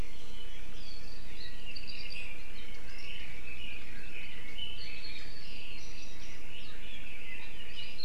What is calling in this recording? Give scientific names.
Leiothrix lutea